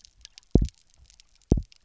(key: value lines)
label: biophony, double pulse
recorder: SoundTrap 300